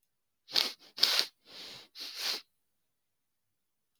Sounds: Sniff